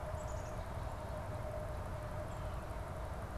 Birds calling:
Black-capped Chickadee (Poecile atricapillus)

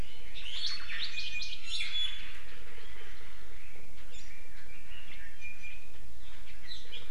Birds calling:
Iiwi (Drepanis coccinea)

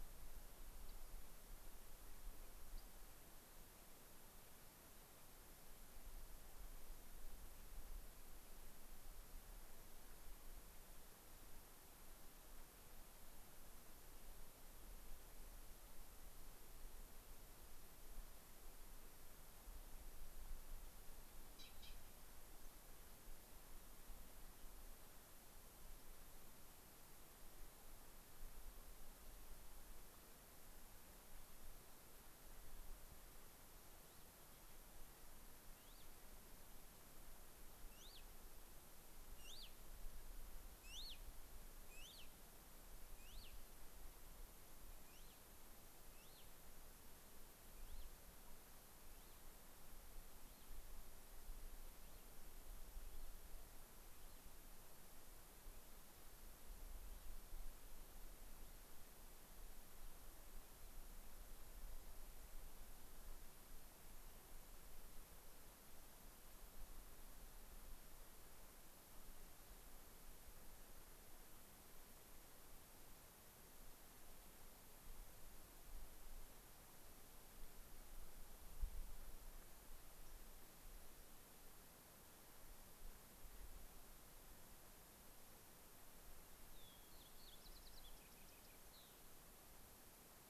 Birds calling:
Rock Wren (Salpinctes obsoletus), Fox Sparrow (Passerella iliaca), Cassin's Finch (Haemorhous cassinii)

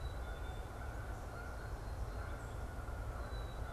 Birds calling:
Black-capped Chickadee (Poecile atricapillus), Canada Goose (Branta canadensis)

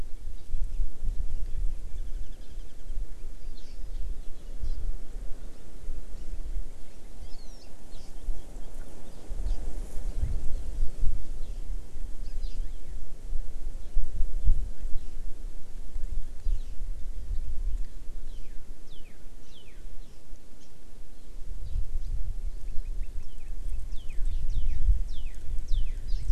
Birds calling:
Hawaii Amakihi (Chlorodrepanis virens), Northern Cardinal (Cardinalis cardinalis), Warbling White-eye (Zosterops japonicus)

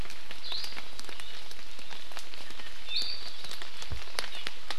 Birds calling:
Iiwi (Drepanis coccinea)

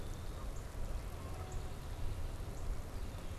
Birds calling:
Northern Cardinal (Cardinalis cardinalis), Red-winged Blackbird (Agelaius phoeniceus)

